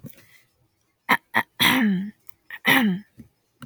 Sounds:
Throat clearing